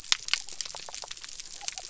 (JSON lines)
{"label": "biophony", "recorder": "SoundTrap 300"}